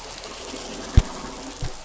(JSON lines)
{"label": "biophony", "recorder": "SoundTrap 500"}